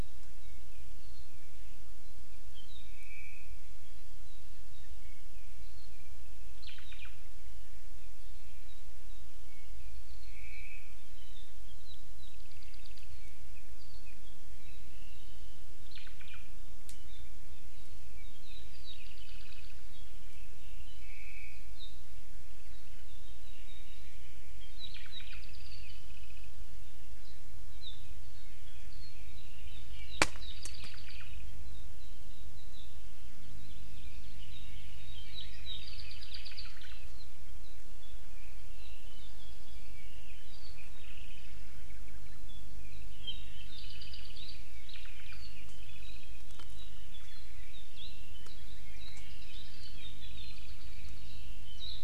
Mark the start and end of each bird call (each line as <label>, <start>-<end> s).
Apapane (Himatione sanguinea), 0.0-1.6 s
Apapane (Himatione sanguinea), 2.0-2.9 s
Omao (Myadestes obscurus), 2.8-3.6 s
Apapane (Himatione sanguinea), 3.8-6.6 s
Omao (Myadestes obscurus), 6.6-7.3 s
Apapane (Himatione sanguinea), 8.0-10.6 s
Omao (Myadestes obscurus), 10.2-11.0 s
Apapane (Himatione sanguinea), 11.0-15.9 s
Omao (Myadestes obscurus), 15.8-16.5 s
Apapane (Himatione sanguinea), 16.9-21.0 s
Omao (Myadestes obscurus), 21.0-21.7 s
Apapane (Himatione sanguinea), 21.7-21.9 s
Apapane (Himatione sanguinea), 22.6-24.2 s
Apapane (Himatione sanguinea), 24.6-26.5 s
Apapane (Himatione sanguinea), 27.8-27.9 s
Apapane (Himatione sanguinea), 28.4-33.0 s
Hawaii Amakihi (Chlorodrepanis virens), 33.4-34.6 s
Apapane (Himatione sanguinea), 34.5-44.9 s
Omao (Myadestes obscurus), 44.9-45.3 s
Apapane (Himatione sanguinea), 45.3-47.8 s
Warbling White-eye (Zosterops japonicus), 47.9-48.1 s
Apapane (Himatione sanguinea), 48.3-51.8 s
Warbling White-eye (Zosterops japonicus), 49.0-49.2 s
Warbling White-eye (Zosterops japonicus), 49.5-49.6 s
Iiwi (Drepanis coccinea), 49.8-50.0 s
Warbling White-eye (Zosterops japonicus), 51.8-51.9 s